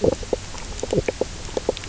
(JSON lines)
{"label": "biophony, knock croak", "recorder": "SoundTrap 300"}